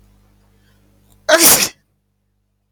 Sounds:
Sneeze